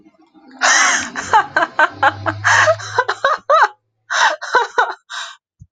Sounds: Laughter